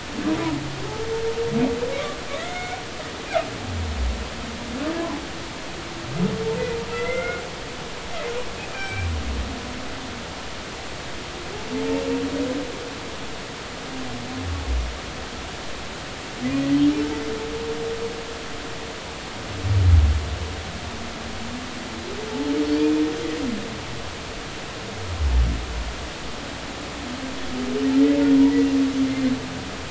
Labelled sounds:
2.4	2.8	humpback whale, 1.3 to 2.4 kHz
6.9	7.4	humpback whale, 1.2 to 2.2 kHz
8.7	9.1	humpback whale, 1.5 to 2.5 kHz
22.8	23.0	humpback whale, 2.3 to 2.5 kHz

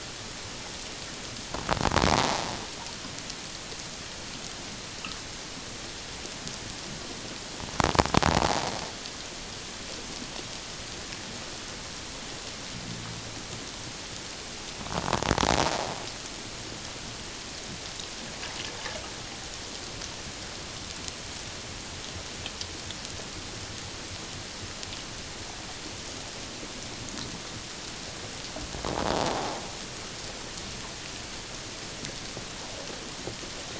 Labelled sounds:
2.1	2.4	invertebrate grinding on or near the hydrophone, 0.78 to 1.0 kHz

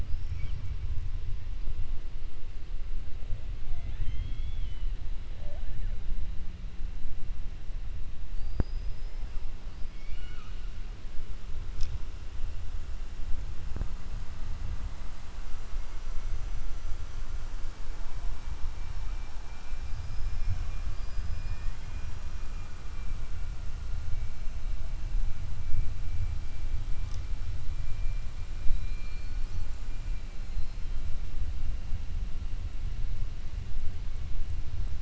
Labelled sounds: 0.0	0.6	killer whale, 1.6 to 5.6 kHz
3.6	4.9	killer whale, 0.14 to 4.3 kHz
8.3	9.2	killer whale, 4.5 to 5.3 kHz
9.9	10.6	killer whale, 1.2 to 5.5 kHz
20.8	22.1	killer whale, 1.5 to 5.7 kHz

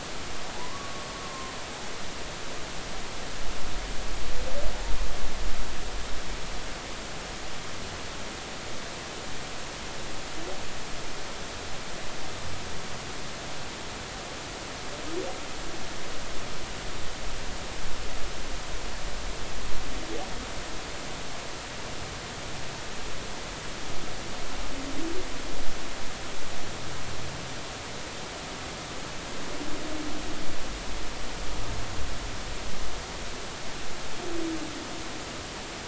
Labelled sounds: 0.6	1.5	humpback whale, 0.93 to 1.2 kHz

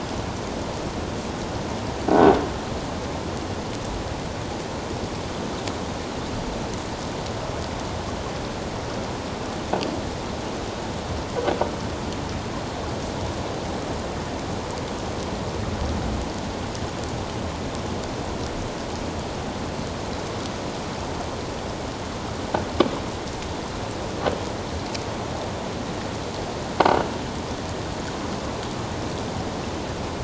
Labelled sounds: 2.1	2.4	croaking sound likely from a nearby submerged object, 1.4 to 1.6 kHz

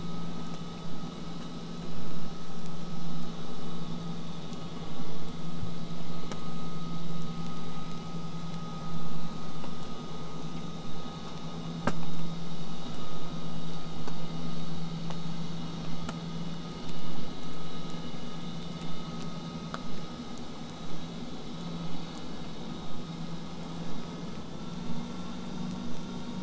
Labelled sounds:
18.8	23.8	vessel noise, 0 to 8.0 kHz

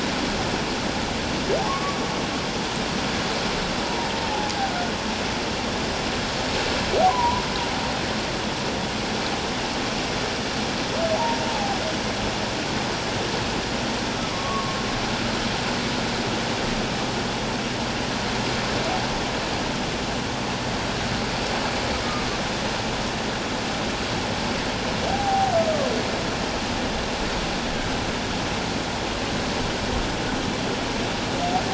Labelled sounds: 1.7	2.0	humpback whale, 1.0 to 1.2 kHz
3.8	4.1	humpback whale, 0.81 to 1.0 kHz
7.1	7.4	humpback whale, 0.88 to 1.2 kHz
11.2	11.8	humpback whale, 0.78 to 1.0 kHz
14.3	14.8	humpback whale, 0.97 to 1.2 kHz
22.0	22.3	humpback whale, 1.1 to 1.3 kHz
25.1	25.5	humpback whale, 0.78 to 0.84 kHz

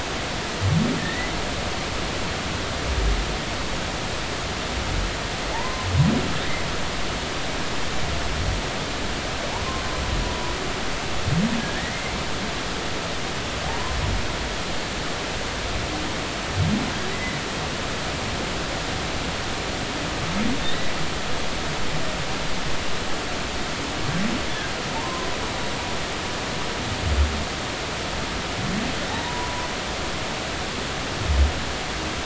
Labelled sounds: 1.0	1.3	humpback whale, 1.7 to 2.0 kHz
5.5	5.9	humpback whale, 0.83 to 1.1 kHz
11.6	11.9	humpback whale, 1.6 to 2.0 kHz
13.7	13.9	humpback whale, 0.86 to 1.1 kHz
17.1	17.4	humpback whale, 1.9 to 2.1 kHz
20.6	20.9	humpback whale, 1.8 to 4.0 kHz
24.9	25.3	humpback whale, 0.83 to 1.1 kHz
29.1	29.7	humpback whale, 0.80 to 1.0 kHz

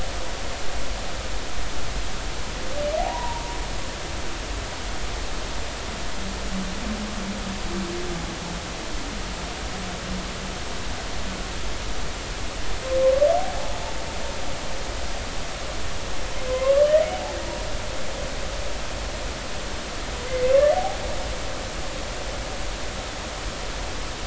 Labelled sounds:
3.0	3.4	humpback whale, 0.80 to 1.1 kHz
16.5	16.9	humpback whale, 0.96 to 1.2 kHz
17.4	17.7	humpback whale, 0.90 to 1.1 kHz
20.3	21.0	humpback whale, 0.80 to 2.1 kHz

